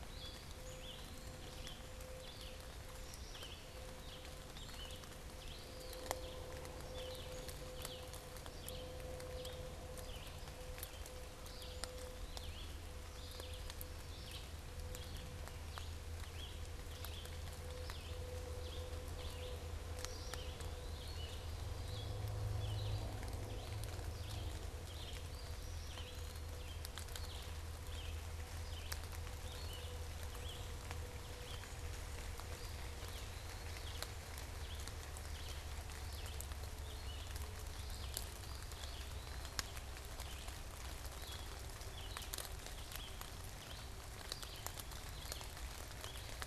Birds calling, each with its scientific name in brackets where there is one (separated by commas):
Red-eyed Vireo (Vireo olivaceus), Eastern Wood-Pewee (Contopus virens)